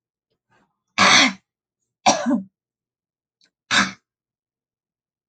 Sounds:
Throat clearing